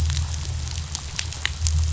{"label": "anthrophony, boat engine", "recorder": "SoundTrap 500"}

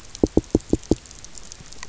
{"label": "biophony, knock", "recorder": "SoundTrap 300"}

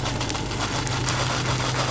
{"label": "anthrophony, boat engine", "recorder": "SoundTrap 500"}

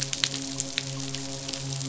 {"label": "biophony, midshipman", "recorder": "SoundTrap 500"}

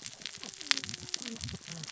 {"label": "biophony, cascading saw", "recorder": "SoundTrap 600 or HydroMoth"}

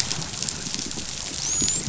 {"label": "biophony, dolphin", "recorder": "SoundTrap 500"}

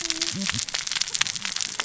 {"label": "biophony, cascading saw", "recorder": "SoundTrap 600 or HydroMoth"}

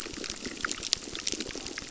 {"label": "biophony, crackle", "recorder": "SoundTrap 600"}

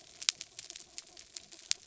{"label": "anthrophony, mechanical", "recorder": "SoundTrap 300"}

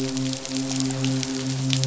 {"label": "biophony, midshipman", "recorder": "SoundTrap 500"}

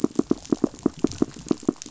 {"label": "biophony, knock", "recorder": "SoundTrap 500"}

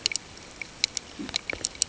{"label": "ambient", "recorder": "HydroMoth"}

